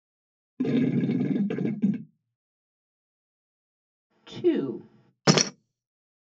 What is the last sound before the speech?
gurgling